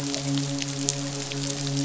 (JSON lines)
{"label": "biophony, midshipman", "recorder": "SoundTrap 500"}